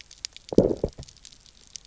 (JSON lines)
{"label": "biophony, low growl", "recorder": "SoundTrap 300"}